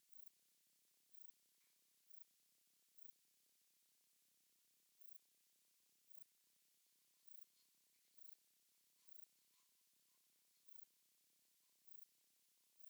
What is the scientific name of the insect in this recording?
Pterolepis spoliata